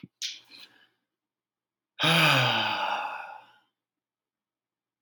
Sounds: Sigh